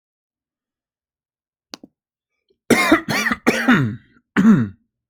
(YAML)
expert_labels:
- quality: good
  cough_type: dry
  dyspnea: false
  wheezing: false
  stridor: false
  choking: false
  congestion: false
  nothing: true
  diagnosis: healthy cough
  severity: pseudocough/healthy cough
age: 40
gender: male
respiratory_condition: false
fever_muscle_pain: false
status: symptomatic